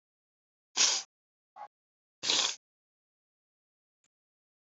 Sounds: Sniff